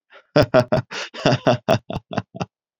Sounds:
Laughter